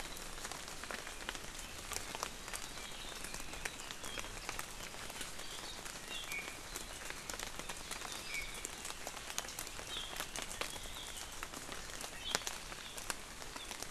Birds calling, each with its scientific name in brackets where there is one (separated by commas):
Iiwi (Drepanis coccinea)